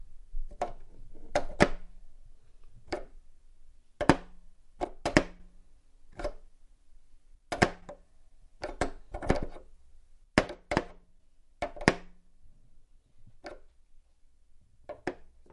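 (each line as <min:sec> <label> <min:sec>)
0:00.0 A moving object sounds on a wooden surface with occasional pauses. 0:15.5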